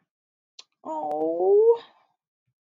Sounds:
Sigh